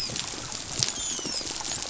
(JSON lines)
{"label": "biophony, dolphin", "recorder": "SoundTrap 500"}